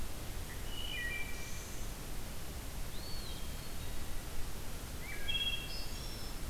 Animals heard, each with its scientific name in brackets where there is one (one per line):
Wood Thrush (Hylocichla mustelina)
Eastern Wood-Pewee (Contopus virens)